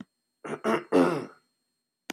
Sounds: Throat clearing